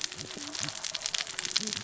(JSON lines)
{"label": "biophony, cascading saw", "recorder": "SoundTrap 600 or HydroMoth"}